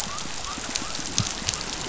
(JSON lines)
{"label": "biophony", "recorder": "SoundTrap 500"}